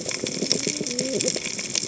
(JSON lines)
{"label": "biophony, cascading saw", "recorder": "HydroMoth"}